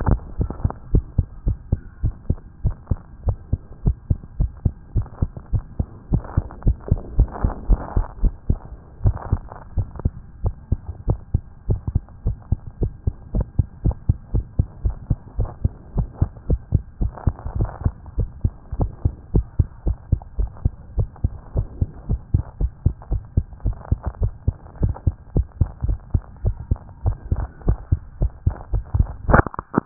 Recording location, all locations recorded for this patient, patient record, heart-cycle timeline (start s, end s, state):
tricuspid valve (TV)
aortic valve (AV)+pulmonary valve (PV)+tricuspid valve (TV)+mitral valve (MV)
#Age: Child
#Sex: Female
#Height: 116.0 cm
#Weight: 19.1 kg
#Pregnancy status: False
#Murmur: Absent
#Murmur locations: nan
#Most audible location: nan
#Systolic murmur timing: nan
#Systolic murmur shape: nan
#Systolic murmur grading: nan
#Systolic murmur pitch: nan
#Systolic murmur quality: nan
#Diastolic murmur timing: nan
#Diastolic murmur shape: nan
#Diastolic murmur grading: nan
#Diastolic murmur pitch: nan
#Diastolic murmur quality: nan
#Outcome: Normal
#Campaign: 2014 screening campaign
0.00	0.06	systole
0.06	0.18	S2
0.18	0.38	diastole
0.38	0.50	S1
0.50	0.62	systole
0.62	0.72	S2
0.72	0.92	diastole
0.92	1.04	S1
1.04	1.16	systole
1.16	1.26	S2
1.26	1.46	diastole
1.46	1.58	S1
1.58	1.70	systole
1.70	1.80	S2
1.80	2.02	diastole
2.02	2.14	S1
2.14	2.28	systole
2.28	2.38	S2
2.38	2.64	diastole
2.64	2.76	S1
2.76	2.90	systole
2.90	2.98	S2
2.98	3.26	diastole
3.26	3.36	S1
3.36	3.52	systole
3.52	3.60	S2
3.60	3.84	diastole
3.84	3.96	S1
3.96	4.08	systole
4.08	4.18	S2
4.18	4.38	diastole
4.38	4.50	S1
4.50	4.64	systole
4.64	4.74	S2
4.74	4.94	diastole
4.94	5.06	S1
5.06	5.20	systole
5.20	5.30	S2
5.30	5.52	diastole
5.52	5.64	S1
5.64	5.78	systole
5.78	5.88	S2
5.88	6.12	diastole
6.12	6.22	S1
6.22	6.36	systole
6.36	6.44	S2
6.44	6.64	diastole
6.64	6.76	S1
6.76	6.90	systole
6.90	7.00	S2
7.00	7.16	diastole
7.16	7.28	S1
7.28	7.42	systole
7.42	7.54	S2
7.54	7.68	diastole
7.68	7.80	S1
7.80	7.94	systole
7.94	8.04	S2
8.04	8.22	diastole
8.22	8.32	S1
8.32	8.48	systole
8.48	8.60	S2
8.60	9.04	diastole
9.04	9.16	S1
9.16	9.30	systole
9.30	9.40	S2
9.40	9.76	diastole
9.76	9.88	S1
9.88	10.04	systole
10.04	10.12	S2
10.12	10.42	diastole
10.42	10.54	S1
10.54	10.70	systole
10.70	10.80	S2
10.80	11.08	diastole
11.08	11.18	S1
11.18	11.32	systole
11.32	11.42	S2
11.42	11.68	diastole
11.68	11.80	S1
11.80	11.94	systole
11.94	12.02	S2
12.02	12.24	diastole
12.24	12.36	S1
12.36	12.50	systole
12.50	12.60	S2
12.60	12.80	diastole
12.80	12.92	S1
12.92	13.06	systole
13.06	13.14	S2
13.14	13.34	diastole
13.34	13.46	S1
13.46	13.58	systole
13.58	13.66	S2
13.66	13.84	diastole
13.84	13.96	S1
13.96	14.08	systole
14.08	14.16	S2
14.16	14.34	diastole
14.34	14.44	S1
14.44	14.58	systole
14.58	14.66	S2
14.66	14.84	diastole
14.84	14.96	S1
14.96	15.08	systole
15.08	15.18	S2
15.18	15.38	diastole
15.38	15.50	S1
15.50	15.62	systole
15.62	15.72	S2
15.72	15.96	diastole
15.96	16.08	S1
16.08	16.20	systole
16.20	16.30	S2
16.30	16.48	diastole
16.48	16.60	S1
16.60	16.72	systole
16.72	16.82	S2
16.82	17.00	diastole
17.00	17.12	S1
17.12	17.26	systole
17.26	17.34	S2
17.34	17.56	diastole
17.56	17.70	S1
17.70	17.84	systole
17.84	17.94	S2
17.94	18.18	diastole
18.18	18.28	S1
18.28	18.42	systole
18.42	18.52	S2
18.52	18.78	diastole
18.78	18.90	S1
18.90	19.04	systole
19.04	19.14	S2
19.14	19.34	diastole
19.34	19.46	S1
19.46	19.58	systole
19.58	19.68	S2
19.68	19.86	diastole
19.86	19.98	S1
19.98	20.10	systole
20.10	20.20	S2
20.20	20.38	diastole
20.38	20.50	S1
20.50	20.64	systole
20.64	20.72	S2
20.72	20.96	diastole
20.96	21.08	S1
21.08	21.22	systole
21.22	21.32	S2
21.32	21.56	diastole
21.56	21.66	S1
21.66	21.80	systole
21.80	21.88	S2
21.88	22.08	diastole
22.08	22.20	S1
22.20	22.32	systole
22.32	22.44	S2
22.44	22.60	diastole
22.60	22.72	S1
22.72	22.84	systole
22.84	22.94	S2
22.94	23.10	diastole
23.10	23.22	S1
23.22	23.36	systole
23.36	23.46	S2
23.46	23.64	diastole
23.64	23.76	S1
23.76	23.90	systole
23.90	24.00	S2
24.00	24.20	diastole
24.20	24.32	S1
24.32	24.46	systole
24.46	24.56	S2
24.56	24.82	diastole
24.82	24.94	S1
24.94	25.06	systole
25.06	25.14	S2
25.14	25.36	diastole
25.36	25.46	S1
25.46	25.60	systole
25.60	25.68	S2
25.68	25.86	diastole
25.86	25.98	S1
25.98	26.12	systole
26.12	26.22	S2
26.22	26.44	diastole
26.44	26.56	S1
26.56	26.70	systole
26.70	26.78	S2
26.78	27.04	diastole
27.04	27.16	S1
27.16	27.32	systole
27.32	27.44	S2
27.44	27.66	diastole
27.66	27.78	S1
27.78	27.90	systole
27.90	28.00	S2
28.00	28.20	diastole
28.20	28.32	S1
28.32	28.46	systole
28.46	28.54	S2
28.54	28.96	diastole
28.96	29.10	S1
29.10	29.28	systole
29.28	29.44	S2
29.44	29.86	diastole